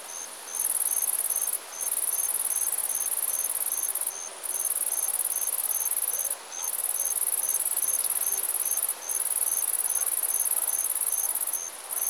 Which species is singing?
Natula averni